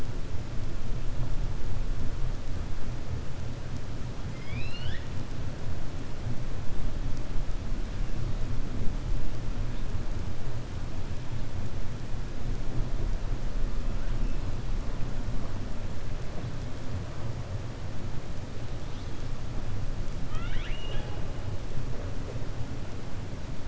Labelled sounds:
4.3	5.1	killer whale, 1.4 to 5.3 kHz
20.2	21.2	killer whale, 0.50 to 3.9 kHz

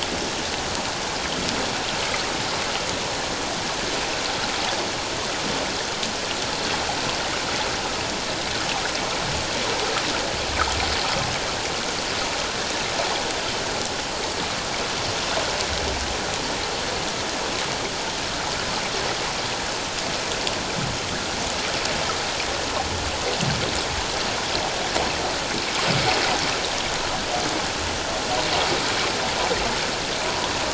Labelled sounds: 30.3	30.5	water noise, 0.91 to 1.2 kHz

